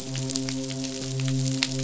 {"label": "biophony, midshipman", "recorder": "SoundTrap 500"}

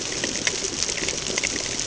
{"label": "ambient", "recorder": "HydroMoth"}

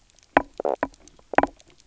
{"label": "biophony, knock croak", "recorder": "SoundTrap 300"}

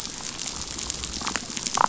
{"label": "biophony, damselfish", "recorder": "SoundTrap 500"}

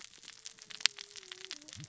{"label": "biophony, cascading saw", "recorder": "SoundTrap 600 or HydroMoth"}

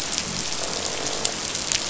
{"label": "biophony, croak", "recorder": "SoundTrap 500"}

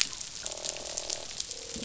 {"label": "biophony, croak", "recorder": "SoundTrap 500"}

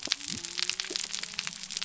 {"label": "biophony", "recorder": "SoundTrap 300"}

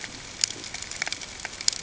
{"label": "ambient", "recorder": "HydroMoth"}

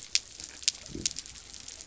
{"label": "biophony", "recorder": "SoundTrap 300"}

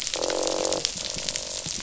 {"label": "biophony, croak", "recorder": "SoundTrap 500"}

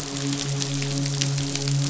{"label": "biophony, midshipman", "recorder": "SoundTrap 500"}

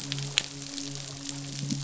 {"label": "biophony, midshipman", "recorder": "SoundTrap 500"}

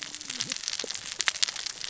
{"label": "biophony, cascading saw", "recorder": "SoundTrap 600 or HydroMoth"}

